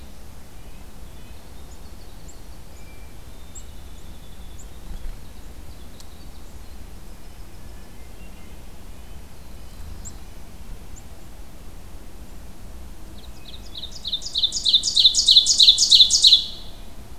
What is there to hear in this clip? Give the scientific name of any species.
Sitta canadensis, Troglodytes hiemalis, Catharus guttatus, Setophaga caerulescens, Seiurus aurocapilla